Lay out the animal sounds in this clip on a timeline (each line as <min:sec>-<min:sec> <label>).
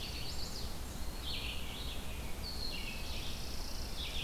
0:00.0-0:00.8 Chimney Swift (Chaetura pelagica)
0:00.0-0:04.2 Red-eyed Vireo (Vireo olivaceus)
0:00.9-0:01.6 Eastern Wood-Pewee (Contopus virens)
0:02.5-0:04.2 Chipping Sparrow (Spizella passerina)